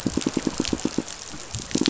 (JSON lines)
{"label": "biophony, pulse", "recorder": "SoundTrap 500"}